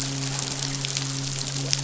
{"label": "biophony, midshipman", "recorder": "SoundTrap 500"}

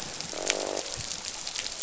{"label": "biophony, croak", "recorder": "SoundTrap 500"}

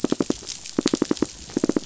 {"label": "biophony, knock", "recorder": "SoundTrap 500"}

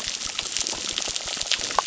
{"label": "biophony, crackle", "recorder": "SoundTrap 600"}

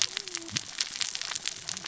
{"label": "biophony, cascading saw", "recorder": "SoundTrap 600 or HydroMoth"}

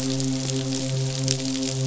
{"label": "biophony, midshipman", "recorder": "SoundTrap 500"}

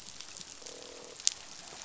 {"label": "biophony, croak", "recorder": "SoundTrap 500"}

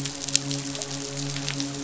{"label": "biophony, midshipman", "recorder": "SoundTrap 500"}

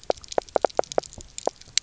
{"label": "biophony, knock croak", "recorder": "SoundTrap 300"}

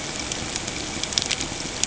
{"label": "ambient", "recorder": "HydroMoth"}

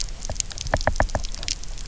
{"label": "biophony, knock", "recorder": "SoundTrap 300"}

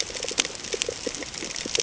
{"label": "ambient", "recorder": "HydroMoth"}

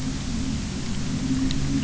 {"label": "anthrophony, boat engine", "recorder": "SoundTrap 300"}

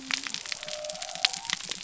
{"label": "biophony", "recorder": "SoundTrap 300"}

